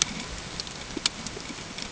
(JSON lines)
{"label": "ambient", "recorder": "HydroMoth"}